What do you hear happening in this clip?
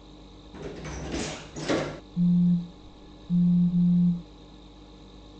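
First, the sound of a door is heard. Then the sound of a telephone can be heard.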